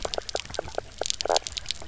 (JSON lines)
{"label": "biophony, knock croak", "recorder": "SoundTrap 300"}